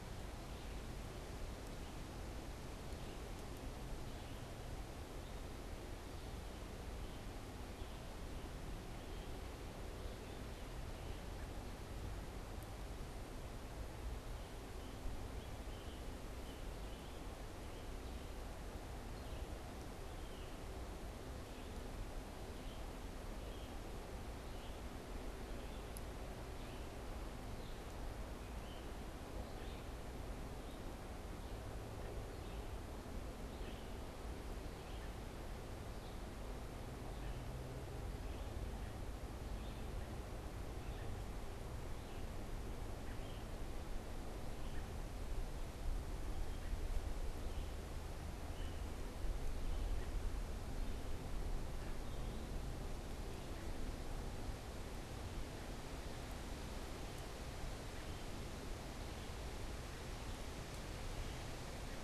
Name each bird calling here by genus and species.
Vireo olivaceus, Piranga olivacea